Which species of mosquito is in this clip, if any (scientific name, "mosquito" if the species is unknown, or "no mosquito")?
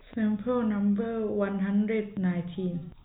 no mosquito